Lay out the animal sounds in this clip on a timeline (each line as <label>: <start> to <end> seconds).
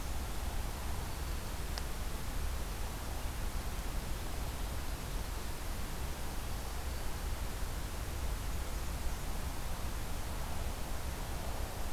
Black-and-white Warbler (Mniotilta varia): 8.2 to 9.5 seconds